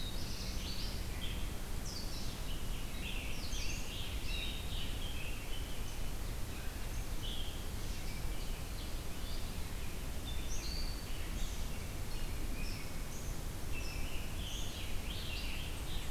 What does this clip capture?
Black-throated Blue Warbler, Red-eyed Vireo, Scarlet Tanager